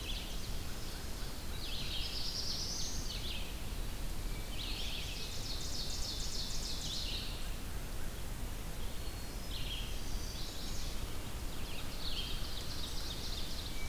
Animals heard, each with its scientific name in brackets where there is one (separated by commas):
Ovenbird (Seiurus aurocapilla), Black-throated Blue Warbler (Setophaga caerulescens), Hermit Thrush (Catharus guttatus), Chestnut-sided Warbler (Setophaga pensylvanica), American Crow (Corvus brachyrhynchos), Red-eyed Vireo (Vireo olivaceus)